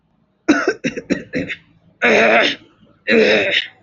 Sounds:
Throat clearing